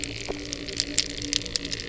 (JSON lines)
{"label": "anthrophony, boat engine", "recorder": "SoundTrap 300"}